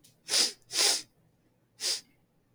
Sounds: Sniff